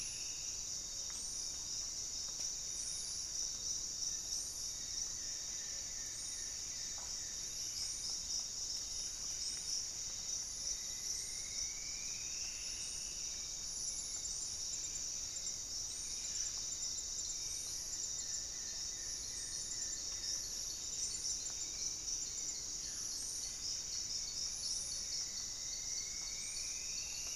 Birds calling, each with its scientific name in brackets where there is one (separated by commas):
Hauxwell's Thrush (Turdus hauxwelli), Goeldi's Antbird (Akletos goeldii), Black-faced Antthrush (Formicarius analis), unidentified bird, Buff-breasted Wren (Cantorchilus leucotis), Paradise Tanager (Tangara chilensis), Striped Woodcreeper (Xiphorhynchus obsoletus)